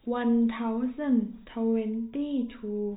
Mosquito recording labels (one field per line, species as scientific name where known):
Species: no mosquito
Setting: cup